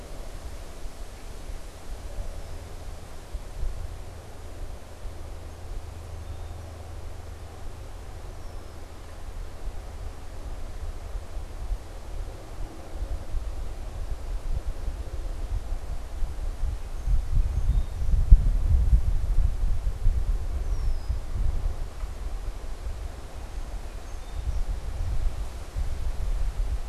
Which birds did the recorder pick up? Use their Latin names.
Agelaius phoeniceus, Melospiza melodia